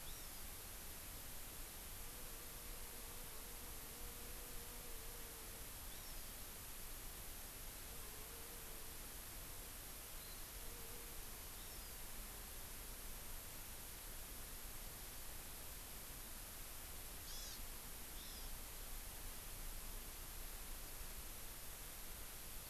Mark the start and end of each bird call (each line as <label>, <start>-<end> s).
Hawaii Amakihi (Chlorodrepanis virens), 0.0-0.5 s
Hawaii Amakihi (Chlorodrepanis virens), 5.9-6.3 s
Hawaii Amakihi (Chlorodrepanis virens), 10.2-10.4 s
Hawaii Amakihi (Chlorodrepanis virens), 11.6-12.0 s
Hawaii Amakihi (Chlorodrepanis virens), 17.2-17.6 s
Hawaii Amakihi (Chlorodrepanis virens), 18.1-18.5 s